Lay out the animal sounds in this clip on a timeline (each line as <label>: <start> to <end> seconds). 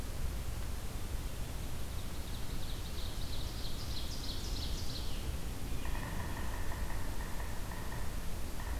Ovenbird (Seiurus aurocapilla): 1.7 to 5.4 seconds
Yellow-bellied Sapsucker (Sphyrapicus varius): 5.8 to 8.3 seconds